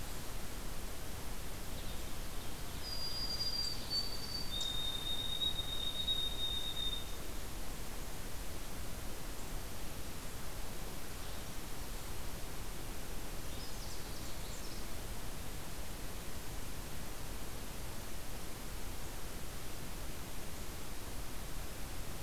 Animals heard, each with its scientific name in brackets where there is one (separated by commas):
White-throated Sparrow (Zonotrichia albicollis), Canada Warbler (Cardellina canadensis), Winter Wren (Troglodytes hiemalis)